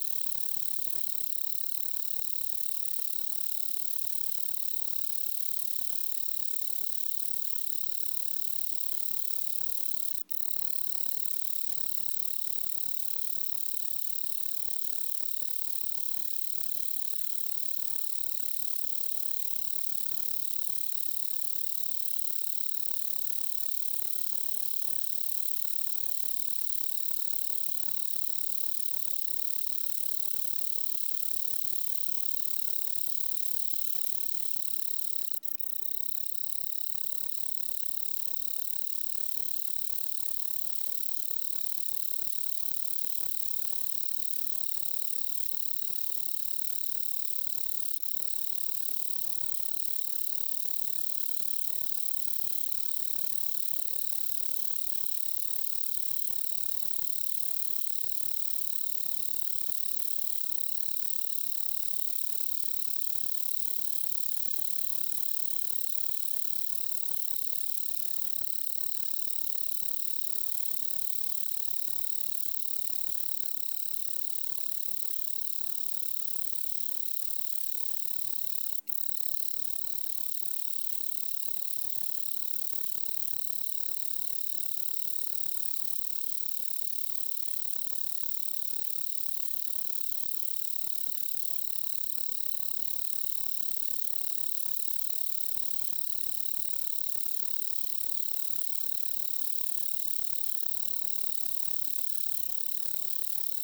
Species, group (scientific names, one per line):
Anelytra tristellata
Orthoptera